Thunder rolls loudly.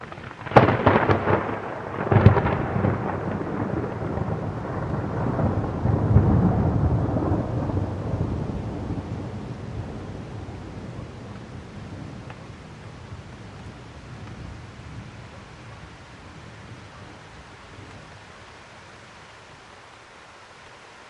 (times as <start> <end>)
0.2 9.0